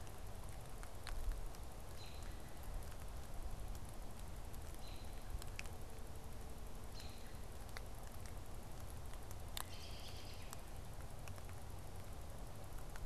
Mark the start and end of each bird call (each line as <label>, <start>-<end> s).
American Robin (Turdus migratorius), 1.8-2.3 s
American Robin (Turdus migratorius), 4.7-5.2 s
American Robin (Turdus migratorius), 6.8-7.4 s
American Robin (Turdus migratorius), 9.4-10.7 s